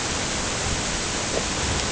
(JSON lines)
{"label": "ambient", "recorder": "HydroMoth"}